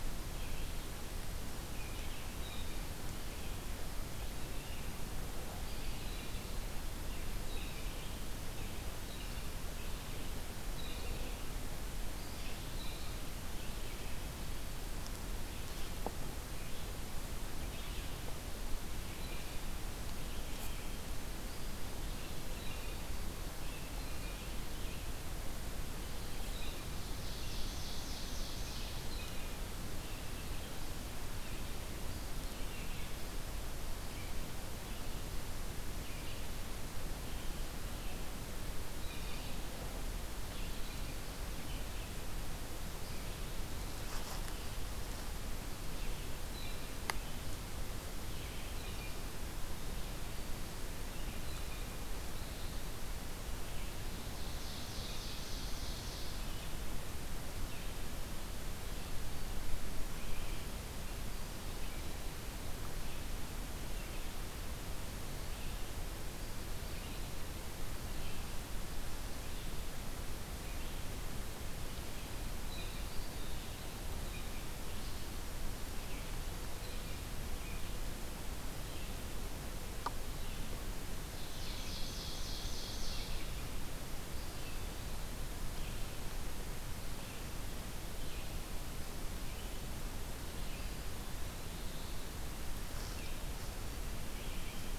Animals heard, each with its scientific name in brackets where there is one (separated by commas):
Ovenbird (Seiurus aurocapilla), Red-eyed Vireo (Vireo olivaceus), Blue Jay (Cyanocitta cristata)